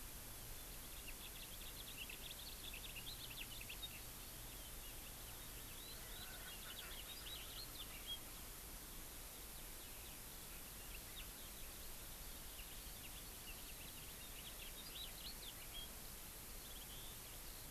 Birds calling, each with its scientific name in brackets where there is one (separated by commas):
Eurasian Skylark (Alauda arvensis), House Finch (Haemorhous mexicanus)